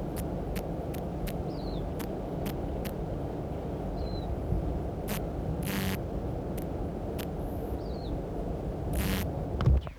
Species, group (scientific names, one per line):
Kikihia muta
Cicadidae